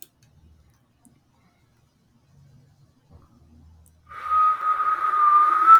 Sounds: Cough